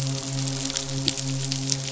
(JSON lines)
{"label": "biophony, midshipman", "recorder": "SoundTrap 500"}